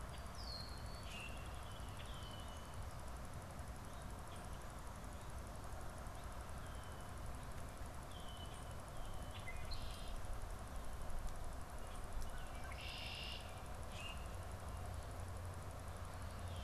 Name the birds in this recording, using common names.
Red-winged Blackbird, Common Grackle